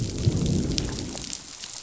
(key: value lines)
label: biophony, growl
recorder: SoundTrap 500